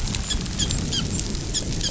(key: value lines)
label: biophony, dolphin
recorder: SoundTrap 500